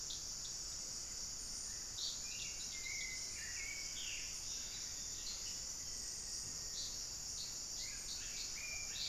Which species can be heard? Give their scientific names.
Turdus hauxwelli, Formicarius analis, Patagioenas plumbea